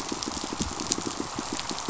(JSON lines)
{"label": "biophony, pulse", "recorder": "SoundTrap 500"}